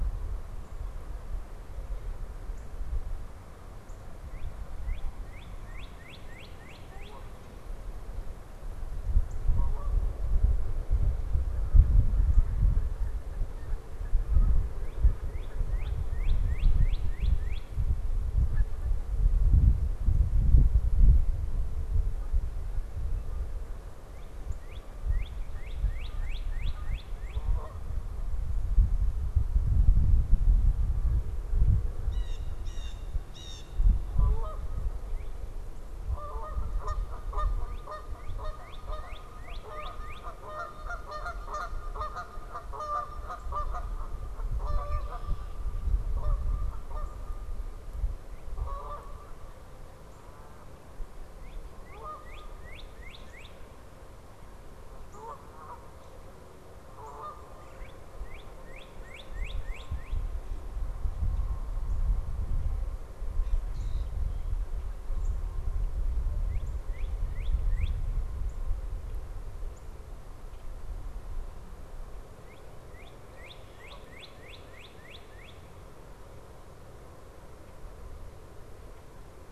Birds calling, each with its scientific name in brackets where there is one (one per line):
Northern Cardinal (Cardinalis cardinalis)
Canada Goose (Branta canadensis)
Blue Jay (Cyanocitta cristata)
Red-winged Blackbird (Agelaius phoeniceus)